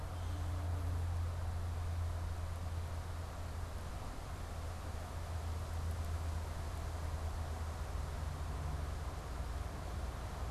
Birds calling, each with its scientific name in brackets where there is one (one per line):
unidentified bird